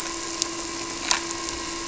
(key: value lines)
label: anthrophony, boat engine
recorder: SoundTrap 300